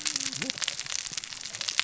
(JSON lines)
{"label": "biophony, cascading saw", "recorder": "SoundTrap 600 or HydroMoth"}